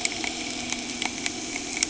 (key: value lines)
label: anthrophony, boat engine
recorder: HydroMoth